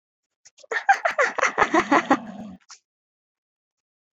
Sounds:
Laughter